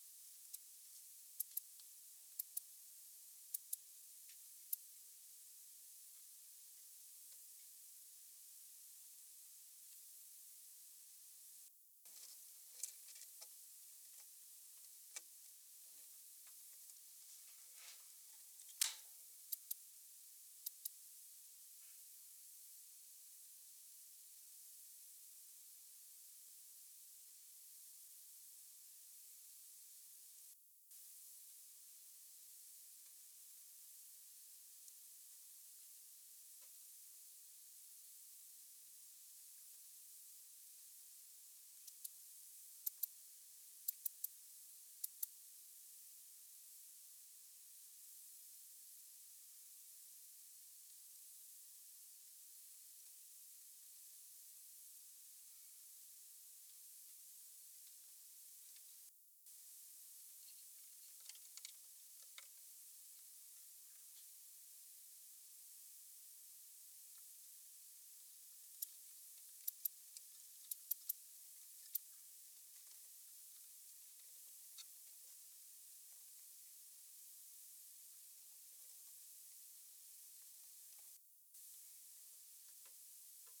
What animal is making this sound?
Barbitistes serricauda, an orthopteran